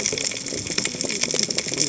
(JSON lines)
{"label": "biophony, cascading saw", "recorder": "HydroMoth"}